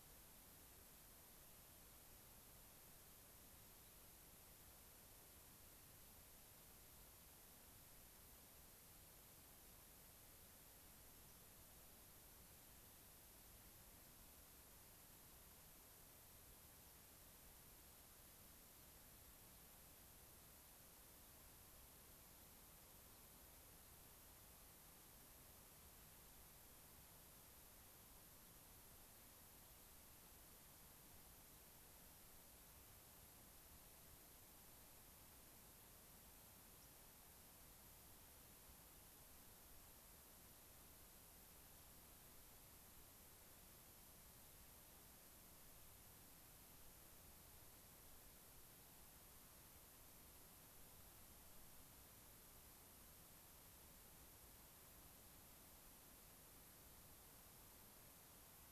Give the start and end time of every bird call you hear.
36.7s-36.9s: White-crowned Sparrow (Zonotrichia leucophrys)

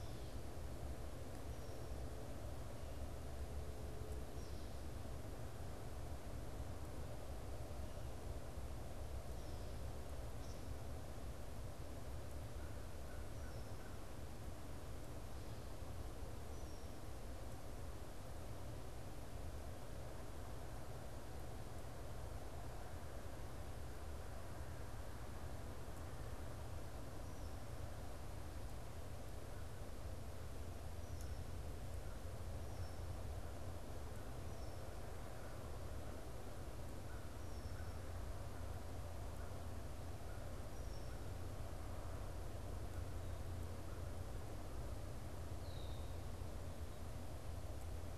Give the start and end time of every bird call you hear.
4.2s-11.1s: Red-winged Blackbird (Agelaius phoeniceus)
12.0s-14.2s: American Crow (Corvus brachyrhynchos)
16.3s-16.9s: Red-winged Blackbird (Agelaius phoeniceus)
32.6s-41.3s: Red-winged Blackbird (Agelaius phoeniceus)
35.0s-41.8s: American Crow (Corvus brachyrhynchos)
45.5s-46.1s: Red-winged Blackbird (Agelaius phoeniceus)

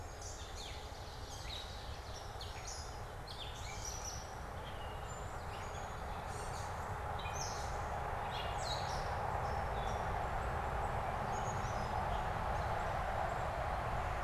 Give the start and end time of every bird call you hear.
0.0s-0.9s: Black-capped Chickadee (Poecile atricapillus)
0.0s-12.4s: Gray Catbird (Dumetella carolinensis)
0.2s-2.6s: Ovenbird (Seiurus aurocapilla)
10.1s-12.1s: Black-capped Chickadee (Poecile atricapillus)

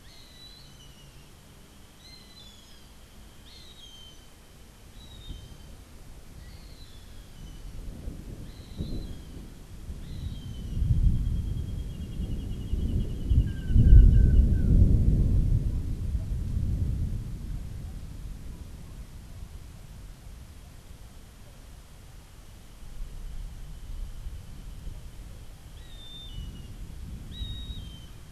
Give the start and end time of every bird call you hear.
0.0s-10.8s: Gray Hawk (Buteo plagiatus)
13.5s-14.8s: Long-tailed Manakin (Chiroxiphia linearis)
25.8s-28.3s: Gray Hawk (Buteo plagiatus)

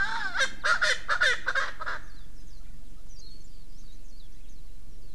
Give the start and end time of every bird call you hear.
0.0s-2.0s: Erckel's Francolin (Pternistis erckelii)
2.0s-2.3s: Warbling White-eye (Zosterops japonicus)
3.1s-4.3s: Warbling White-eye (Zosterops japonicus)

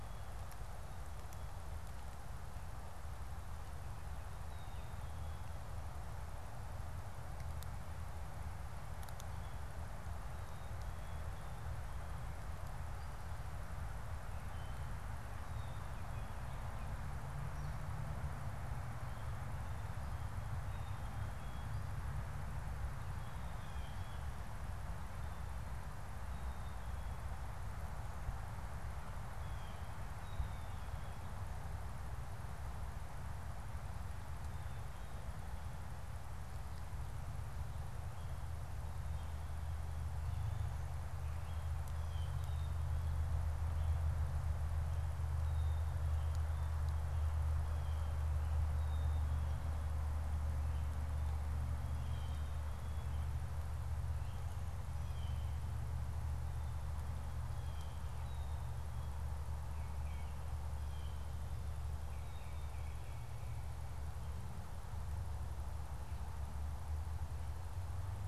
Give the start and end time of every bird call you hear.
0.0s-5.6s: Black-capped Chickadee (Poecile atricapillus)
14.3s-15.0s: Wood Thrush (Hylocichla mustelina)
15.4s-16.1s: Black-capped Chickadee (Poecile atricapillus)
15.8s-17.1s: Ovenbird (Seiurus aurocapilla)
20.6s-24.3s: Black-capped Chickadee (Poecile atricapillus)
29.2s-29.9s: Blue Jay (Cyanocitta cristata)
30.1s-31.4s: Black-capped Chickadee (Poecile atricapillus)
30.2s-31.4s: Baltimore Oriole (Icterus galbula)
41.8s-42.3s: Blue Jay (Cyanocitta cristata)
42.2s-58.9s: Black-capped Chickadee (Poecile atricapillus)
51.8s-52.6s: Blue Jay (Cyanocitta cristata)
57.3s-58.0s: Blue Jay (Cyanocitta cristata)
59.6s-60.5s: Tufted Titmouse (Baeolophus bicolor)
61.9s-63.5s: Tufted Titmouse (Baeolophus bicolor)

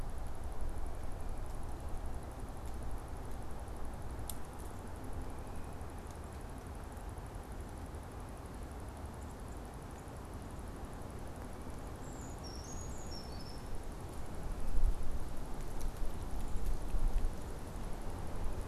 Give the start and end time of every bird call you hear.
11.8s-13.9s: Brown Creeper (Certhia americana)

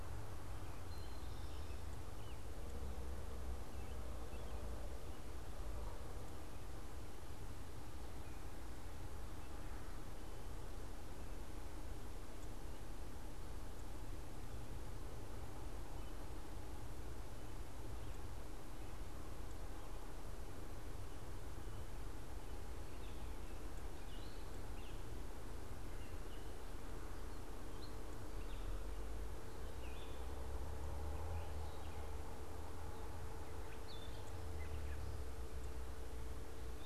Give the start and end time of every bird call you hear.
0.8s-1.9s: Eastern Towhee (Pipilo erythrophthalmus)
29.7s-30.3s: Red-eyed Vireo (Vireo olivaceus)
33.5s-35.2s: Gray Catbird (Dumetella carolinensis)

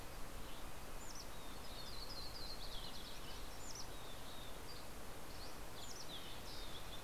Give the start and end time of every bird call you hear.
0.0s-0.5s: Dusky Flycatcher (Empidonax oberholseri)
0.0s-7.0s: Mountain Chickadee (Poecile gambeli)
0.0s-7.0s: Red-breasted Nuthatch (Sitta canadensis)
1.2s-4.6s: Yellow-rumped Warbler (Setophaga coronata)
3.2s-7.0s: Green-tailed Towhee (Pipilo chlorurus)
4.2s-5.7s: Dusky Flycatcher (Empidonax oberholseri)

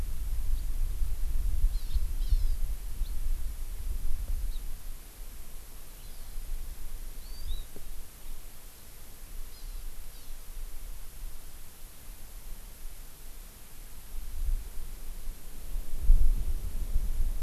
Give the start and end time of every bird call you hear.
0.5s-0.6s: House Finch (Haemorhous mexicanus)
1.7s-2.6s: Hawaii Amakihi (Chlorodrepanis virens)
1.8s-2.0s: House Finch (Haemorhous mexicanus)
3.0s-3.1s: House Finch (Haemorhous mexicanus)
4.5s-4.6s: House Finch (Haemorhous mexicanus)
6.0s-6.4s: Hawaii Amakihi (Chlorodrepanis virens)
7.2s-7.6s: Hawaii Amakihi (Chlorodrepanis virens)
9.5s-10.4s: Hawaii Amakihi (Chlorodrepanis virens)

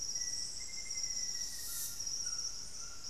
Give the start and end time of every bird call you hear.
0.0s-2.1s: Black-faced Antthrush (Formicarius analis)
0.0s-3.1s: Golden-crowned Spadebill (Platyrinchus coronatus)
0.0s-3.1s: White-throated Toucan (Ramphastos tucanus)

